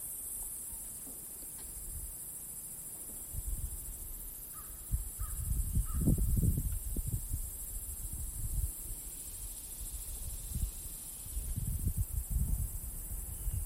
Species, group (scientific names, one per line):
Diceroprocta vitripennis
Cicadidae